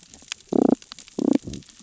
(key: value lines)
label: biophony, damselfish
recorder: SoundTrap 600 or HydroMoth